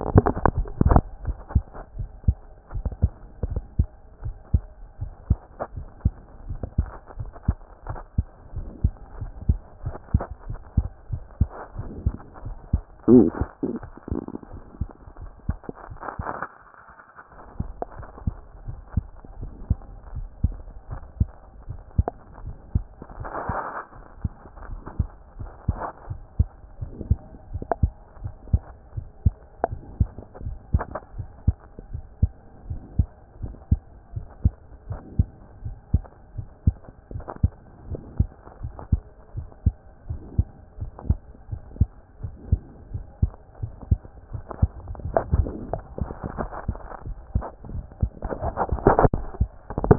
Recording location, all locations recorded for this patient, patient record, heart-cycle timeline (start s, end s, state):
mitral valve (MV)
pulmonary valve (PV)+tricuspid valve (TV)+mitral valve (MV)
#Age: Child
#Sex: Male
#Height: 123.0 cm
#Weight: 22.9 kg
#Pregnancy status: False
#Murmur: Absent
#Murmur locations: nan
#Most audible location: nan
#Systolic murmur timing: nan
#Systolic murmur shape: nan
#Systolic murmur grading: nan
#Systolic murmur pitch: nan
#Systolic murmur quality: nan
#Diastolic murmur timing: nan
#Diastolic murmur shape: nan
#Diastolic murmur grading: nan
#Diastolic murmur pitch: nan
#Diastolic murmur quality: nan
#Outcome: Normal
#Campaign: 2014 screening campaign
0.00	3.48	unannotated
3.48	3.60	S1
3.60	3.78	systole
3.78	3.88	S2
3.88	4.24	diastole
4.24	4.36	S1
4.36	4.52	systole
4.52	4.64	S2
4.64	5.00	diastole
5.00	5.12	S1
5.12	5.28	systole
5.28	5.38	S2
5.38	5.74	diastole
5.74	5.86	S1
5.86	6.04	systole
6.04	6.14	S2
6.14	6.48	diastole
6.48	6.60	S1
6.60	6.78	systole
6.78	6.88	S2
6.88	7.18	diastole
7.18	7.30	S1
7.30	7.46	systole
7.46	7.58	S2
7.58	7.88	diastole
7.88	7.98	S1
7.98	8.16	systole
8.16	8.26	S2
8.26	8.54	diastole
8.54	8.66	S1
8.66	8.82	systole
8.82	8.92	S2
8.92	9.20	diastole
9.20	9.32	S1
9.32	9.48	systole
9.48	9.58	S2
9.58	9.84	diastole
9.84	9.96	S1
9.96	10.12	systole
10.12	10.22	S2
10.22	10.48	diastole
10.48	10.60	S1
10.60	10.76	systole
10.76	10.88	S2
10.88	11.10	diastole
11.10	11.22	S1
11.22	11.40	systole
11.40	11.48	S2
11.48	11.78	diastole
11.78	11.88	S1
11.88	12.04	systole
12.04	12.16	S2
12.16	12.42	diastole
12.42	49.98	unannotated